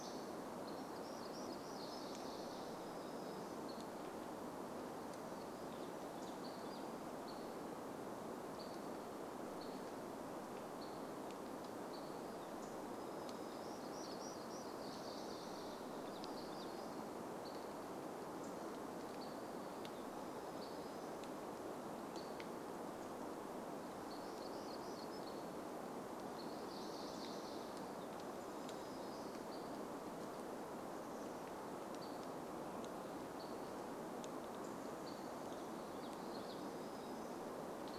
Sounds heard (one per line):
Chestnut-backed Chickadee call
Hammond's Flycatcher call
warbler song
Hammond's Flycatcher song